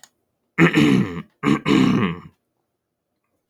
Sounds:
Throat clearing